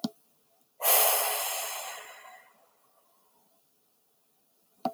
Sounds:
Sigh